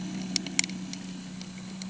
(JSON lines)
{"label": "anthrophony, boat engine", "recorder": "HydroMoth"}